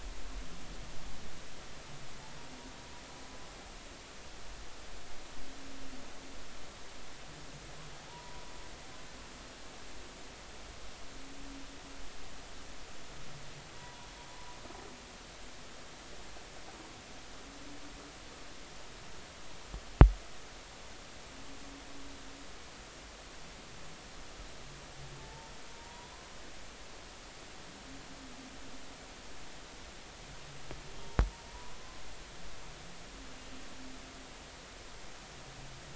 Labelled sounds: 8.1	8.5	humpback whale, 0.86 to 1.0 kHz
13.7	14.1	humpback whale, 0.90 to 1.1 kHz
25.2	26.1	humpback whale, 0.83 to 1.0 kHz
31.5	31.8	humpback whale, 0.93 to 1.0 kHz

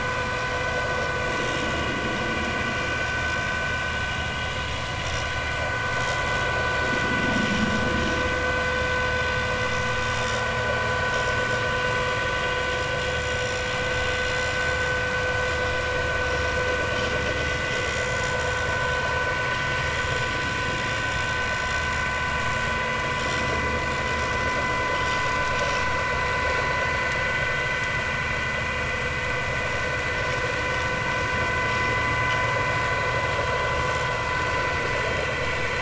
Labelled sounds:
17.8	19.2	vessel noise, 4.0 to 7.2 kHz
19.9	20.2	vessel noise, 6.9 to 7.2 kHz
25.6	25.9	vessel noise, 5.3 to 5.5 kHz

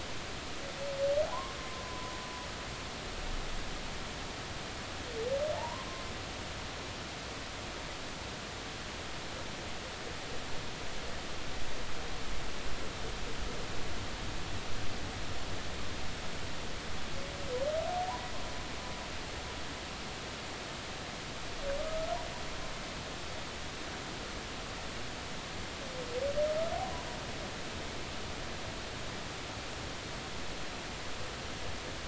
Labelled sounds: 1.3	2.1	humpback whale, 0.90 to 1.2 kHz
5.6	5.9	humpback whale, 0.80 to 1.1 kHz
21.8	22.1	humpback whale, 1.2 to 1.3 kHz

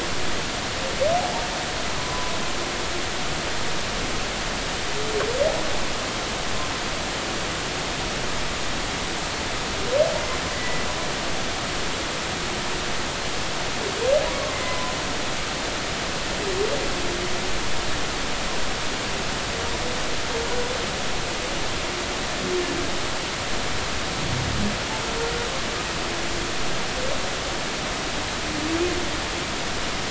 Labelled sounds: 2.0	2.3	humpback whale, 0.96 to 1.1 kHz
10.5	10.9	humpback whale, 1.9 to 2.0 kHz
14.5	15.0	humpback whale, 0.96 to 2.1 kHz

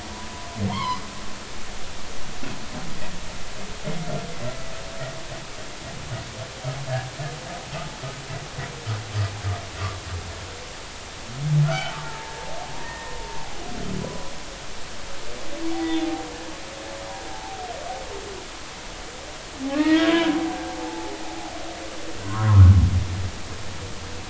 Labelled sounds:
0.1	1.0	humpback whale, 0.90 to 3.4 kHz
11.6	12.4	humpback whale, 0.80 to 1.6 kHz
12.8	13.2	humpback whale, 1.8 to 1.9 kHz
14.0	14.3	humpback whale, 0.96 to 1.1 kHz
15.7	16.2	humpback whale, 0.80 to 2.1 kHz
17.3	17.6	humpback whale, 0.80 to 0.93 kHz
19.7	20.2	humpback whale, 1.1 to 3.4 kHz
20.8	21.3	humpback whale, 0.80 to 1.1 kHz
22.2	22.8	humpback whale, 0.93 to 1.5 kHz

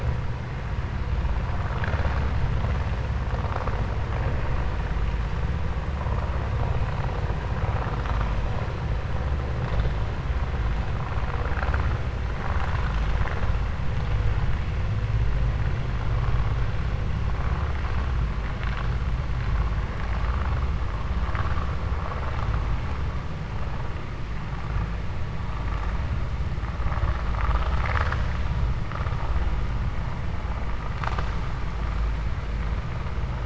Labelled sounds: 11.3	11.9	vessel noise, 0.48 to 4.6 kHz
27.2	28.3	vessel noise, 0.50 to 7.5 kHz

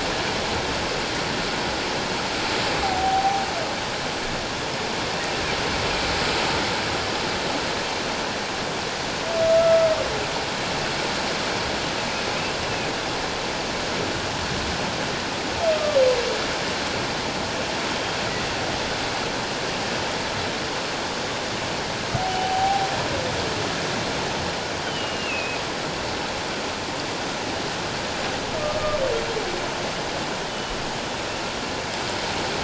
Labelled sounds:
2.8	3.4	humpback whale, 0.78 to 0.88 kHz
9.5	9.8	humpback whale, 1.3 to 1.4 kHz
22.2	22.9	humpback whale, 0.78 to 0.88 kHz
24.8	25.6	humpback whale, 2.4 to 3.2 kHz
30.5	30.8	humpback whale, 2.9 to 3.0 kHz

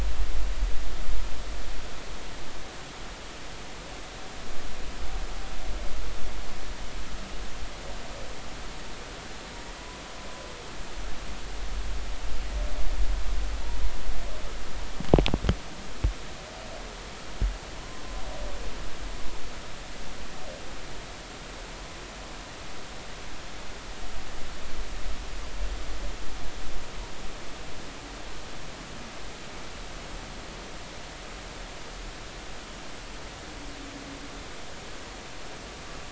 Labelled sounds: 17.8	18.0	humpback whale, 0.99 to 1.1 kHz

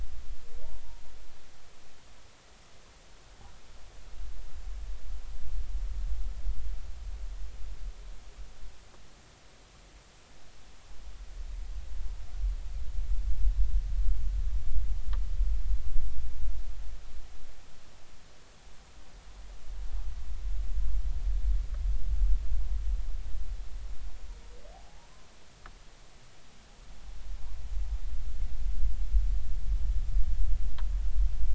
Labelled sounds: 24.7	25.1	humpback whale, 0.80 to 0.99 kHz

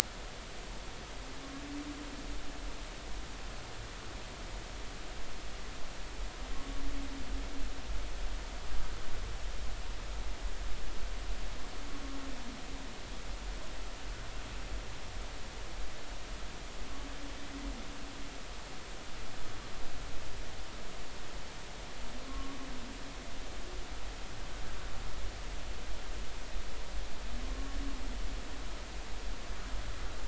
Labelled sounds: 6.5	6.8	humpback whale, 1.1 to 1.2 kHz
22.3	22.6	humpback whale, 1.0 to 1.2 kHz
27.4	27.8	humpback whale, 1.0 to 1.2 kHz

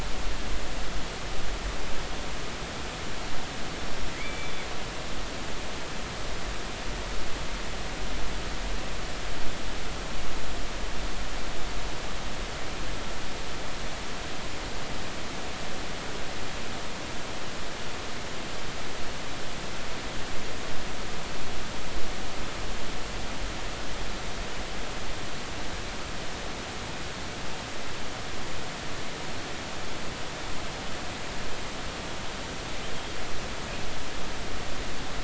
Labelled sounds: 4.1	4.6	killer whale, northern resident, 1.9 to 3.6 kHz

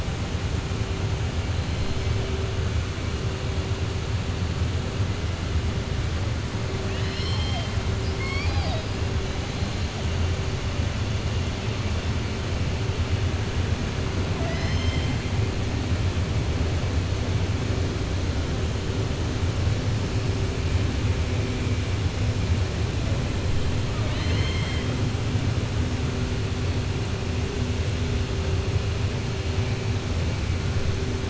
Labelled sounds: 23.9	24.9	killer whale, southern resident, 0.65 to 4.3 kHz

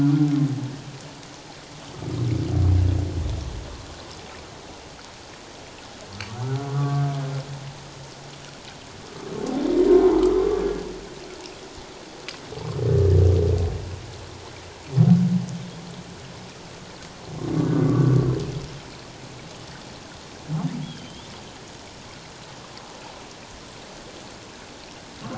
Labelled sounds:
6.4	7.0	humpback whale, 1.1 to 1.5 kHz
10.2	10.9	humpback whale, 1.0 to 1.7 kHz
17.9	18.3	humpback whale, 1.1 to 1.2 kHz
20.8	21.3	humpback whale, 3.0 to 3.6 kHz

